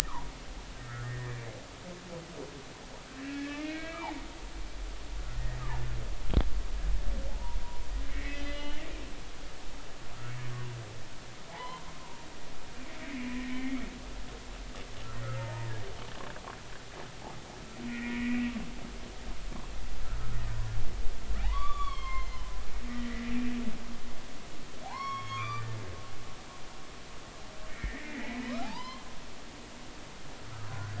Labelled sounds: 0.8	1.4	humpback whale, 1.6 to 2.0 kHz
3.2	4.2	humpback whale, 0.80 to 2.8 kHz
7.3	7.6	humpback whale, 0.80 to 1.0 kHz
8.1	8.8	humpback whale, 1.8 to 4.9 kHz
11.5	12.2	humpback whale, 0.80 to 2.1 kHz
13.4	13.9	humpback whale, 1.8 to 2.4 kHz
15.4	15.7	humpback whale, 0.86 to 0.99 kHz
17.9	18.4	humpback whale, 1.8 to 2.5 kHz
20.1	20.4	humpback whale, 1.2 to 1.3 kHz
21.4	22.6	humpback whale, 0.80 to 6.6 kHz
22.9	23.3	humpback whale, 1.8 to 2.1 kHz
24.8	25.7	humpback whale, 0.80 to 5.6 kHz
27.7	29.1	humpback whale, 0.80 to 5.3 kHz
30.7	30.9	humpback whale, 1.4 to 1.7 kHz

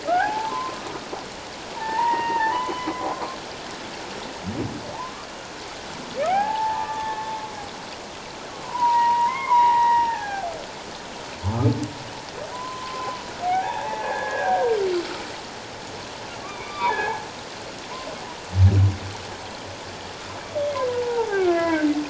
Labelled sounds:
0.1	0.8	humpback whale, 0.78 to 1.7 kHz
1.8	2.9	humpback whale, 0.78 to 3.2 kHz
6.3	7.3	humpback whale, 0.78 to 1.8 kHz
8.6	10.5	humpback whale, 0.78 to 2.9 kHz
12.5	14.7	humpback whale, 0.78 to 1.8 kHz
16.4	17.3	humpback whale, 0.78 to 3.7 kHz
20.9	21.9	humpback whale, 0.78 to 2.4 kHz

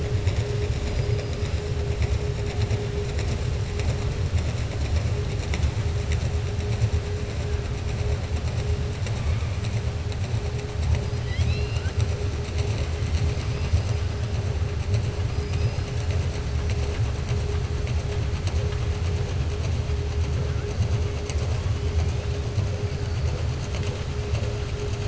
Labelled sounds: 15.3	15.9	killer whale, southern resident, 4.2 to 6.0 kHz

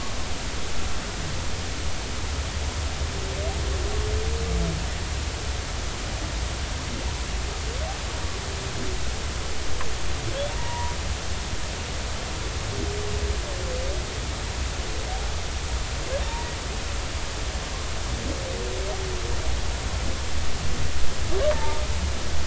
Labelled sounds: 10.6	11.0	humpback whale, 0.86 to 2.0 kHz
16.2	16.5	humpback whale, 0.86 to 0.99 kHz
21.5	21.8	humpback whale, 0.83 to 0.96 kHz

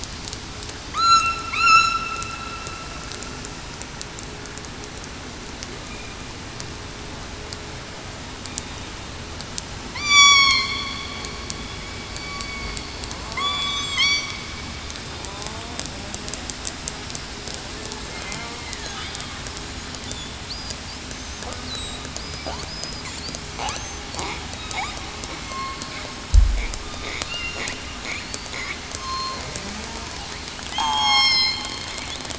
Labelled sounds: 0.9	2.0	killer whale, southern resident, 1.1 to 4.2 kHz
9.9	10.5	killer whale, southern resident, 0.96 to 7.1 kHz
12.4	12.8	killer whale, southern resident, 2.1 to 2.2 kHz
13.3	14.3	killer whale, southern resident, 0.87 to 5.7 kHz
18.5	19.0	killer whale, southern resident, 1.6 to 2.2 kHz
21.7	22.1	killer whale, southern resident, 3.8 to 4.0 kHz
25.4	25.8	killer whale, southern resident, 2.1 to 2.2 kHz
27.3	27.6	killer whale, southern resident, 2.6 to 2.9 kHz
28.9	29.4	killer whale, southern resident, 1.0 to 1.1 kHz
30.7	31.3	killer whale, southern resident, 0.80 to 7.6 kHz

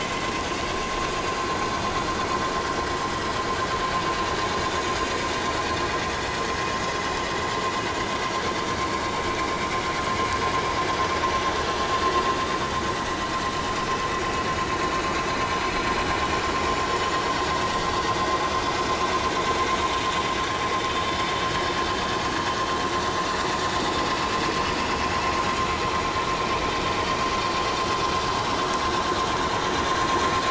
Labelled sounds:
16.6	16.8	vessel noise, 6.9 to 7.2 kHz

